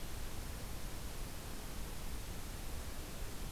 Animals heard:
forest ambience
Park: Acadia National Park